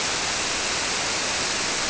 {"label": "biophony", "recorder": "SoundTrap 300"}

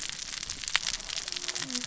{"label": "biophony, cascading saw", "recorder": "SoundTrap 600 or HydroMoth"}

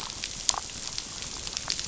{"label": "biophony, damselfish", "recorder": "SoundTrap 500"}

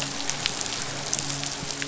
{"label": "biophony, midshipman", "recorder": "SoundTrap 500"}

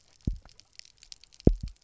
{"label": "biophony, double pulse", "recorder": "SoundTrap 300"}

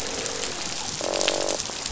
{"label": "biophony, croak", "recorder": "SoundTrap 500"}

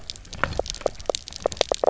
{"label": "biophony, knock croak", "recorder": "SoundTrap 300"}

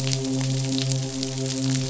{"label": "biophony, midshipman", "recorder": "SoundTrap 500"}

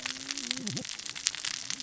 {"label": "biophony, cascading saw", "recorder": "SoundTrap 600 or HydroMoth"}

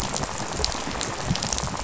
{"label": "biophony, rattle", "recorder": "SoundTrap 500"}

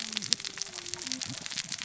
{"label": "biophony, cascading saw", "recorder": "SoundTrap 600 or HydroMoth"}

